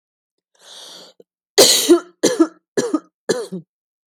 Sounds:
Cough